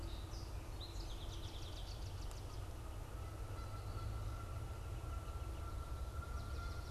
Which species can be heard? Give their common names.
Song Sparrow, Canada Goose, American Goldfinch, Swamp Sparrow